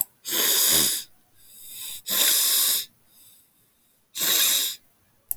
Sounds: Sniff